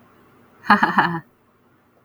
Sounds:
Laughter